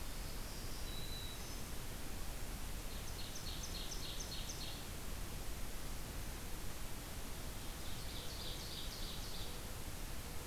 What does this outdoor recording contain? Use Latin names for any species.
Setophaga virens, Seiurus aurocapilla